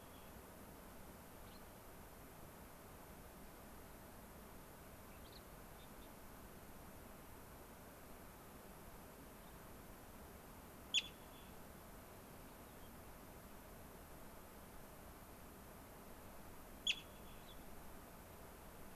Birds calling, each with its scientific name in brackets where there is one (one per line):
Cassin's Finch (Haemorhous cassinii)
Gray-crowned Rosy-Finch (Leucosticte tephrocotis)